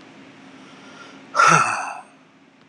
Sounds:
Sigh